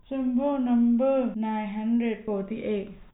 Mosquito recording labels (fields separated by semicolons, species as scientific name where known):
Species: no mosquito; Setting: cup